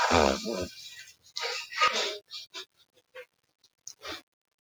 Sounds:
Sniff